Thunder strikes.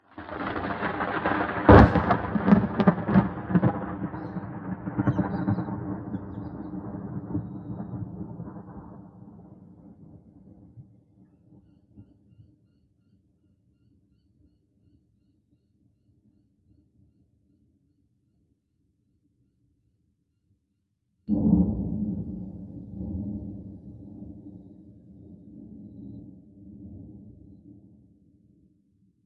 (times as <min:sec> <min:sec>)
0:00.2 0:10.2, 0:21.3 0:23.6